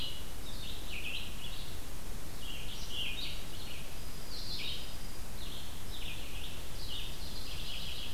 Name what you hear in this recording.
Red-eyed Vireo, Dark-eyed Junco